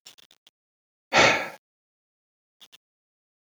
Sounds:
Sigh